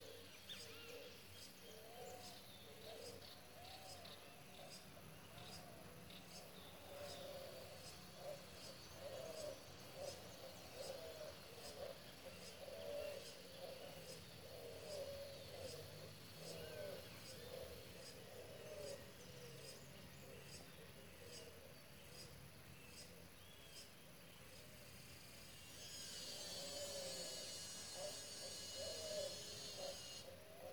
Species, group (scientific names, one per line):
Acanthoventris drewseni
Cicadidae